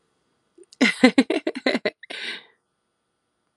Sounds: Laughter